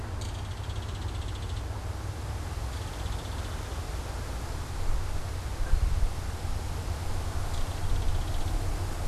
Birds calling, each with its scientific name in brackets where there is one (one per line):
Belted Kingfisher (Megaceryle alcyon)